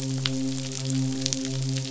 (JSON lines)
{"label": "biophony, midshipman", "recorder": "SoundTrap 500"}